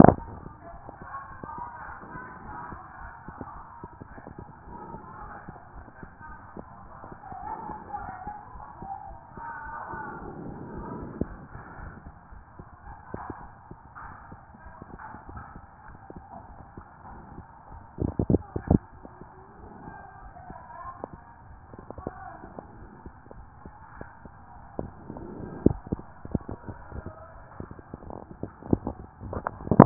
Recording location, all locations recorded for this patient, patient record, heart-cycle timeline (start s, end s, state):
tricuspid valve (TV)
aortic valve (AV)+pulmonary valve (PV)+tricuspid valve (TV)+mitral valve (MV)
#Age: Child
#Sex: Male
#Height: 136.0 cm
#Weight: 46.0 kg
#Pregnancy status: False
#Murmur: Absent
#Murmur locations: nan
#Most audible location: nan
#Systolic murmur timing: nan
#Systolic murmur shape: nan
#Systolic murmur grading: nan
#Systolic murmur pitch: nan
#Systolic murmur quality: nan
#Diastolic murmur timing: nan
#Diastolic murmur shape: nan
#Diastolic murmur grading: nan
#Diastolic murmur pitch: nan
#Diastolic murmur quality: nan
#Outcome: Normal
#Campaign: 2014 screening campaign
0.00	2.62	unannotated
2.62	2.70	systole
2.70	2.80	S2
2.80	3.02	diastole
3.02	3.12	S1
3.12	3.28	systole
3.28	3.36	S2
3.36	3.56	diastole
3.56	3.66	S1
3.66	3.82	systole
3.82	3.88	S2
3.88	4.10	diastole
4.10	4.20	S1
4.20	4.38	systole
4.38	4.46	S2
4.46	4.68	diastole
4.68	4.78	S1
4.78	4.92	systole
4.92	5.02	S2
5.02	5.22	diastole
5.22	5.32	S1
5.32	5.48	systole
5.48	5.56	S2
5.56	5.74	diastole
5.74	5.86	S1
5.86	6.02	systole
6.02	6.10	S2
6.10	6.28	diastole
6.28	6.38	S1
6.38	6.56	systole
6.56	6.66	S2
6.66	6.84	diastole
6.84	6.94	S1
6.94	7.10	systole
7.10	7.18	S2
7.18	7.42	diastole
7.42	7.54	S1
7.54	7.68	systole
7.68	7.76	S2
7.76	7.98	diastole
7.98	8.10	S1
8.10	8.26	systole
8.26	8.34	S2
8.34	8.54	diastole
8.54	8.64	S1
8.64	8.80	systole
8.80	8.90	S2
8.90	9.08	diastole
9.08	9.18	S1
9.18	9.34	systole
9.34	9.44	S2
9.44	9.64	diastole
9.64	9.76	S1
9.76	9.92	systole
9.92	10.02	S2
10.02	10.22	diastole
10.22	10.32	S1
10.32	10.42	systole
10.42	10.52	S2
10.52	10.78	diastole
10.78	29.86	unannotated